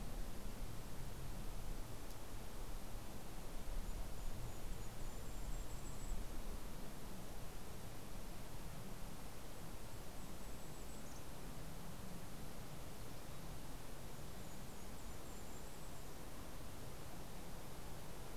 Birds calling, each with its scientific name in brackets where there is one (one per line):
Golden-crowned Kinglet (Regulus satrapa)